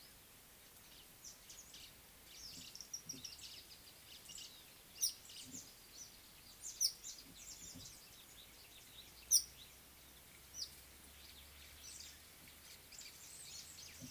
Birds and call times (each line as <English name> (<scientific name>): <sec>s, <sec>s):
White-browed Sparrow-Weaver (Plocepasser mahali): 3.5s, 13.1s
Red-headed Weaver (Anaplectes rubriceps): 6.9s